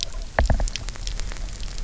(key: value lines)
label: biophony, knock
recorder: SoundTrap 300